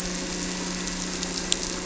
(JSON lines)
{"label": "anthrophony, boat engine", "recorder": "SoundTrap 300"}